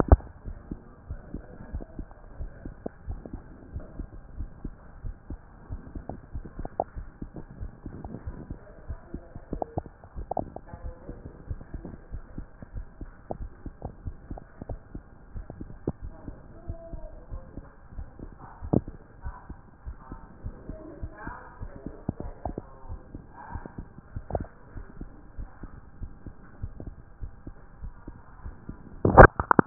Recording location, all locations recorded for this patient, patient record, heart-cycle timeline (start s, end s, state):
aortic valve (AV)
aortic valve (AV)+pulmonary valve (PV)+tricuspid valve (TV)+mitral valve (MV)
#Age: Child
#Sex: Male
#Height: 139.0 cm
#Weight: 36.6 kg
#Pregnancy status: False
#Murmur: Absent
#Murmur locations: nan
#Most audible location: nan
#Systolic murmur timing: nan
#Systolic murmur shape: nan
#Systolic murmur grading: nan
#Systolic murmur pitch: nan
#Systolic murmur quality: nan
#Diastolic murmur timing: nan
#Diastolic murmur shape: nan
#Diastolic murmur grading: nan
#Diastolic murmur pitch: nan
#Diastolic murmur quality: nan
#Outcome: Normal
#Campaign: 2014 screening campaign
0.00	0.36	unannotated
0.36	0.46	diastole
0.46	0.56	S1
0.56	0.70	systole
0.70	0.80	S2
0.80	1.08	diastole
1.08	1.20	S1
1.20	1.32	systole
1.32	1.42	S2
1.42	1.72	diastole
1.72	1.84	S1
1.84	1.98	systole
1.98	2.06	S2
2.06	2.38	diastole
2.38	2.50	S1
2.50	2.64	systole
2.64	2.74	S2
2.74	3.08	diastole
3.08	3.20	S1
3.20	3.32	systole
3.32	3.42	S2
3.42	3.74	diastole
3.74	3.84	S1
3.84	3.98	systole
3.98	4.08	S2
4.08	4.36	diastole
4.36	4.50	S1
4.50	4.64	systole
4.64	4.74	S2
4.74	5.04	diastole
5.04	5.16	S1
5.16	5.30	systole
5.30	5.40	S2
5.40	5.70	diastole
5.70	5.82	S1
5.82	5.94	systole
5.94	6.04	S2
6.04	6.34	diastole
6.34	6.44	S1
6.44	6.58	systole
6.58	6.68	S2
6.68	6.96	diastole
6.96	7.08	S1
7.08	7.22	systole
7.22	7.30	S2
7.30	7.60	diastole
7.60	7.72	S1
7.72	7.86	systole
7.86	7.96	S2
7.96	8.26	diastole
8.26	8.38	S1
8.38	8.50	systole
8.50	8.58	S2
8.58	8.88	diastole
8.88	8.98	S1
8.98	9.12	systole
9.12	9.22	S2
9.22	9.52	diastole
9.52	9.64	S1
9.64	9.76	systole
9.76	9.87	S2
9.87	10.16	diastole
10.16	29.66	unannotated